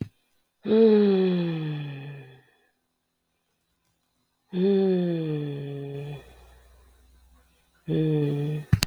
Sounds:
Sigh